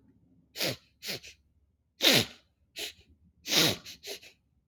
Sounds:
Sniff